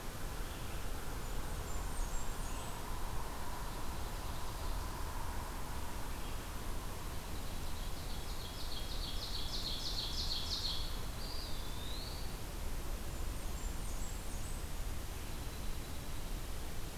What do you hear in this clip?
Blackburnian Warbler, Dark-eyed Junco, Ovenbird, Eastern Wood-Pewee